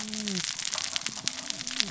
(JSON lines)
{"label": "biophony, cascading saw", "recorder": "SoundTrap 600 or HydroMoth"}